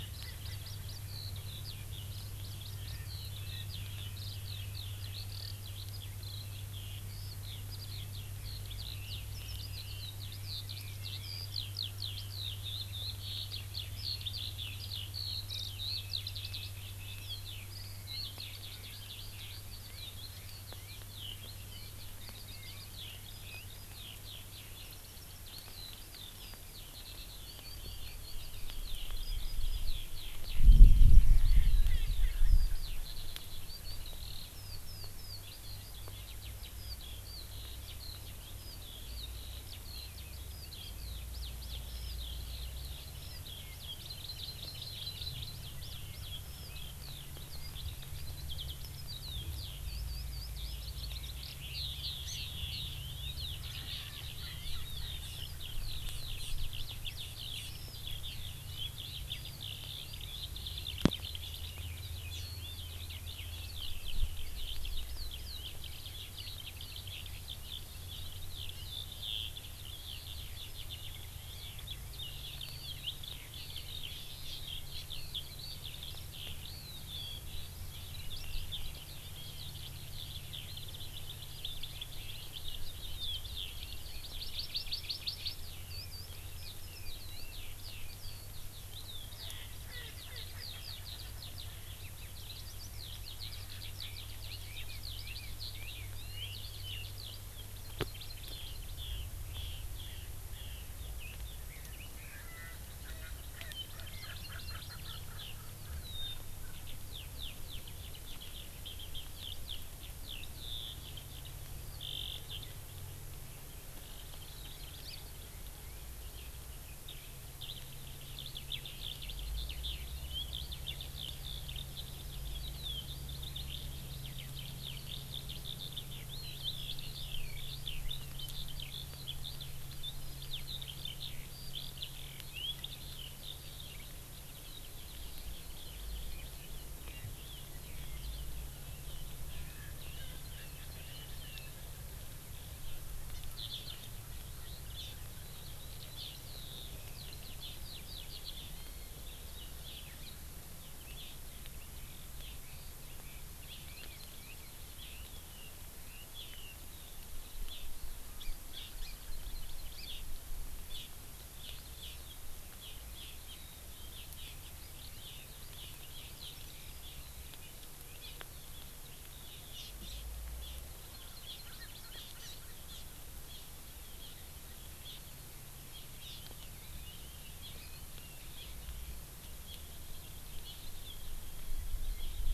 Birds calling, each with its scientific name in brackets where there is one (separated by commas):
Red-billed Leiothrix (Leiothrix lutea), Erckel's Francolin (Pternistis erckelii), Hawaii Amakihi (Chlorodrepanis virens), Eurasian Skylark (Alauda arvensis)